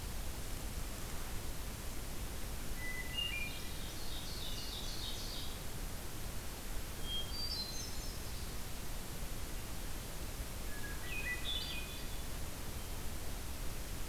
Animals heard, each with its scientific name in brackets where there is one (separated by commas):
Hermit Thrush (Catharus guttatus), Ovenbird (Seiurus aurocapilla)